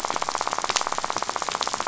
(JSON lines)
{"label": "biophony, rattle", "recorder": "SoundTrap 500"}